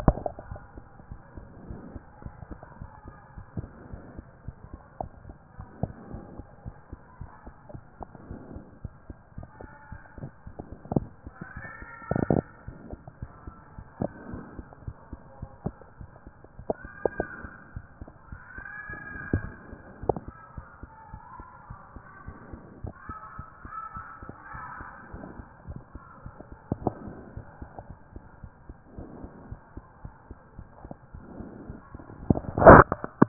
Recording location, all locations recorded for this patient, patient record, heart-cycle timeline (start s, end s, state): mitral valve (MV)
aortic valve (AV)+pulmonary valve (PV)+tricuspid valve (TV)+mitral valve (MV)
#Age: Child
#Sex: Male
#Height: 104.0 cm
#Weight: 23.0 kg
#Pregnancy status: False
#Murmur: Absent
#Murmur locations: nan
#Most audible location: nan
#Systolic murmur timing: nan
#Systolic murmur shape: nan
#Systolic murmur grading: nan
#Systolic murmur pitch: nan
#Systolic murmur quality: nan
#Diastolic murmur timing: nan
#Diastolic murmur shape: nan
#Diastolic murmur grading: nan
#Diastolic murmur pitch: nan
#Diastolic murmur quality: nan
#Outcome: Abnormal
#Campaign: 2014 screening campaign
0.00	0.58	unannotated
0.58	0.62	S1
0.62	0.76	systole
0.76	0.86	S2
0.86	1.10	diastole
1.10	1.20	S1
1.20	1.36	systole
1.36	1.48	S2
1.48	1.68	diastole
1.68	1.82	S1
1.82	1.92	systole
1.92	2.04	S2
2.04	2.24	diastole
2.24	2.34	S1
2.34	2.50	systole
2.50	2.60	S2
2.60	2.80	diastole
2.80	2.90	S1
2.90	3.06	systole
3.06	3.16	S2
3.16	3.36	diastole
3.36	3.46	S1
3.46	3.56	systole
3.56	3.72	S2
3.72	3.92	diastole
3.92	4.04	S1
4.04	4.16	systole
4.16	4.26	S2
4.26	4.46	diastole
4.46	4.56	S1
4.56	4.72	systole
4.72	4.82	S2
4.82	5.02	diastole
5.02	5.12	S1
5.12	5.24	systole
5.24	5.34	S2
5.34	5.58	diastole
5.58	5.70	S1
5.70	5.78	systole
5.78	5.94	S2
5.94	6.10	diastole
6.10	6.24	S1
6.24	6.38	systole
6.38	6.48	S2
6.48	6.66	diastole
6.66	6.76	S1
6.76	6.92	systole
6.92	7.02	S2
7.02	7.20	diastole
7.20	7.30	S1
7.30	7.46	systole
7.46	7.54	S2
7.54	7.72	diastole
7.72	7.82	S1
7.82	8.00	systole
8.00	8.08	S2
8.08	8.28	diastole
8.28	8.42	S1
8.42	8.52	systole
8.52	8.64	S2
8.64	8.84	diastole
8.84	8.94	S1
8.94	9.08	systole
9.08	9.18	S2
9.18	9.36	diastole
9.36	9.48	S1
9.48	9.62	systole
9.62	9.72	S2
9.72	9.90	diastole
9.90	10.00	S1
10.00	10.16	systole
10.16	10.30	S2
10.30	10.46	diastole
10.46	10.54	S1
10.54	10.70	systole
10.70	10.80	S2
10.80	10.96	diastole
10.96	11.12	S1
11.12	11.26	systole
11.26	11.36	S2
11.36	11.56	diastole
11.56	11.66	S1
11.66	11.80	systole
11.80	11.90	S2
11.90	12.06	diastole
12.06	12.22	S1
12.22	12.30	systole
12.30	12.46	S2
12.46	12.66	diastole
12.66	12.78	S1
12.78	12.90	systole
12.90	13.02	S2
13.02	13.20	diastole
13.20	13.32	S1
13.32	13.46	systole
13.46	13.56	S2
13.56	13.76	diastole
13.76	13.86	S1
13.86	14.00	systole
14.00	14.12	S2
14.12	14.30	diastole
14.30	14.46	S1
14.46	14.56	systole
14.56	14.68	S2
14.68	14.86	diastole
14.86	14.96	S1
14.96	15.12	systole
15.12	15.22	S2
15.22	15.42	diastole
15.42	15.52	S1
15.52	15.64	systole
15.64	15.74	S2
15.74	16.00	diastole
16.00	16.10	S1
16.10	16.26	systole
16.26	16.32	S2
16.32	16.58	diastole
16.58	16.68	S1
16.68	16.84	systole
16.84	16.94	S2
16.94	17.14	diastole
17.14	17.28	S1
17.28	17.42	systole
17.42	17.54	S2
17.54	17.72	diastole
17.72	17.86	S1
17.86	18.00	systole
18.00	18.08	S2
18.08	18.28	diastole
18.28	18.40	S1
18.40	18.58	systole
18.58	18.68	S2
18.68	18.88	diastole
18.88	19.00	S1
19.00	19.10	systole
19.10	19.18	S2
19.18	19.34	diastole
19.34	19.52	S1
19.52	19.68	systole
19.68	19.80	S2
19.80	20.02	diastole
20.02	20.18	S1
20.18	20.26	systole
20.26	20.38	S2
20.38	20.58	diastole
20.58	20.68	S1
20.68	20.82	systole
20.82	20.92	S2
20.92	21.12	diastole
21.12	21.22	S1
21.22	21.40	systole
21.40	21.46	S2
21.46	21.70	diastole
21.70	21.80	S1
21.80	21.92	systole
21.92	22.02	S2
22.02	22.24	diastole
22.24	22.36	S1
22.36	22.50	systole
22.50	22.62	S2
22.62	22.80	diastole
22.80	22.94	S1
22.94	23.08	systole
23.08	23.16	S2
23.16	23.38	diastole
23.38	23.46	S1
23.46	23.64	systole
23.64	23.74	S2
23.74	23.96	diastole
23.96	24.06	S1
24.06	24.22	systole
24.22	24.34	S2
24.34	24.54	diastole
24.54	24.64	S1
24.64	24.80	systole
24.80	24.90	S2
24.90	25.10	diastole
25.10	25.24	S1
25.24	25.36	systole
25.36	25.46	S2
25.46	25.68	diastole
25.68	25.82	S1
25.82	25.94	systole
25.94	26.02	S2
26.02	26.22	diastole
26.22	26.32	S1
26.32	26.48	systole
26.48	26.58	S2
26.58	26.76	diastole
26.76	26.94	S1
26.94	27.02	systole
27.02	27.16	S2
27.16	27.34	diastole
27.34	27.46	S1
27.46	27.58	systole
27.58	27.68	S2
27.68	27.88	diastole
27.88	27.98	S1
27.98	28.12	systole
28.12	28.22	S2
28.22	28.44	diastole
28.44	28.50	S1
28.50	28.70	systole
28.70	28.76	S2
28.76	28.94	diastole
28.94	29.08	S1
29.08	29.20	systole
29.20	29.32	S2
29.32	29.50	diastole
29.50	29.62	S1
29.62	29.76	systole
29.76	29.84	S2
29.84	30.04	diastole
30.04	30.14	S1
30.14	30.30	systole
30.30	30.38	S2
30.38	30.58	diastole
30.58	30.68	S1
30.68	30.84	systole
30.84	30.96	S2
30.96	31.14	diastole
31.14	31.24	S1
31.24	31.38	systole
31.38	31.52	S2
31.52	31.68	diastole
31.68	31.80	S1
31.80	31.94	systole
31.94	32.04	S2
32.04	33.28	unannotated